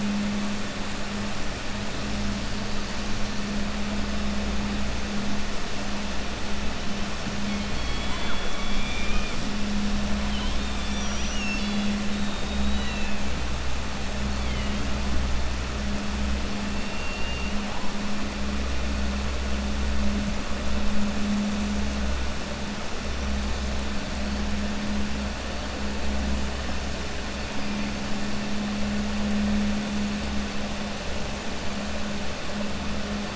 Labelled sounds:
16.7	17.6	killer whale, 1.8 to 3.7 kHz

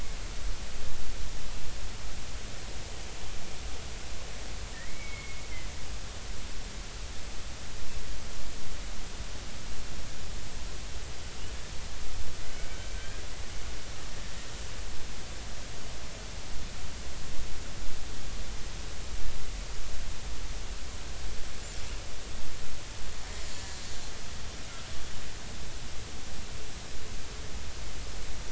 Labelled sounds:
4.7	5.4	killer whale, Bigg's (transient), 1.7 to 2.3 kHz
12.9	13.2	killer whale, Bigg's (transient), 1.5 to 1.7 kHz

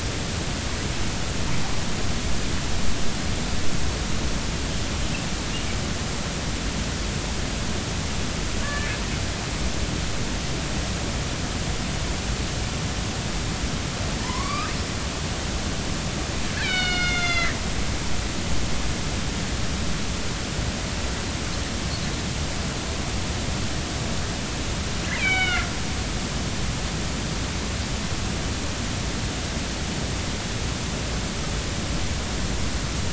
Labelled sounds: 8.6	9.0	killer whale, northern resident, A clan, AB subclan, call N18, 1.1 to 1.8 kHz
14.2	14.7	killer whale, northern resident, A clan, AB subclan, call N16, 0.90 to 5.1 kHz
16.5	17.6	killer whale, northern resident, A clan, AB subclan, call N01ii, 1.3 to 6.5 kHz
25.2	25.7	killer whale, northern resident, A clan, AB subclan, call N01ii, 1.3 to 3.9 kHz

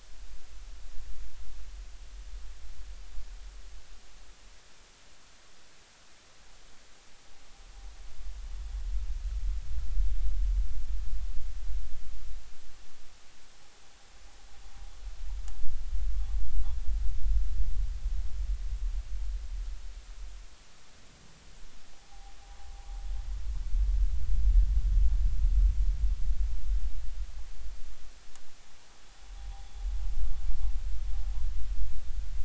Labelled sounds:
21.9	22.4	noise likely from the mooring, 0.80 to 0.86 kHz

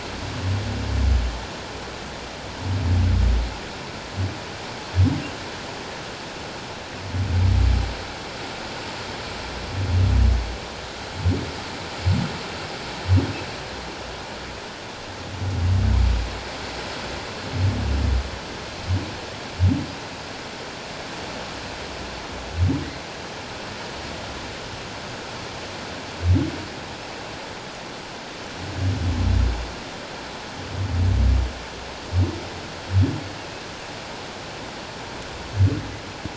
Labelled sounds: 33.4	33.6	humpback whale, 2.5 to 2.8 kHz

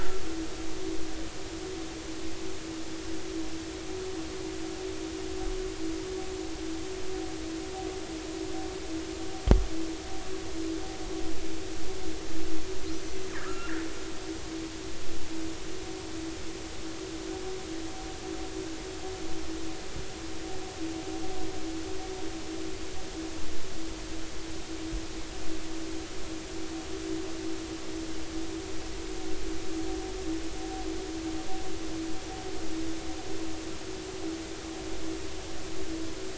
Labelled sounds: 13.4	13.8	killer whale, northern resident, 1.2 to 2.8 kHz

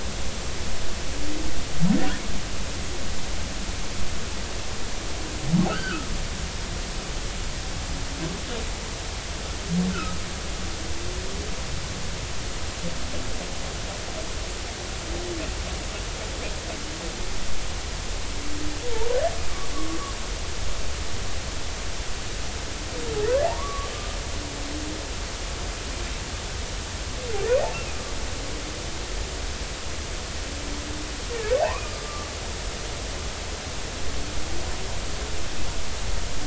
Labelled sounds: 5.7	6.1	humpback whale, 1.2 to 3.2 kHz
9.9	10.2	humpback whale, 1.2 to 1.6 kHz
19.7	20.0	humpback whale, 1.1 to 1.2 kHz
23.4	23.9	humpback whale, 0.80 to 1.3 kHz
27.7	28.0	humpback whale, 2.4 to 2.8 kHz
31.8	32.3	humpback whale, 1.1 to 1.3 kHz

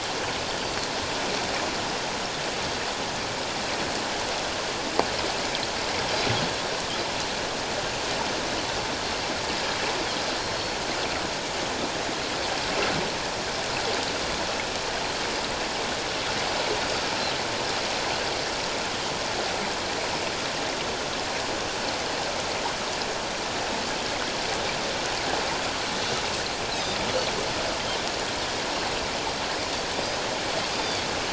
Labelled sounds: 0.6	0.9	Pacific white-sided dolphin, 4.2 to 4.8 kHz
26.7	27.0	Pacific white-sided dolphin, 3.6 to 4.3 kHz
30.7	31.1	Pacific white-sided dolphin, 3.2 to 4.9 kHz

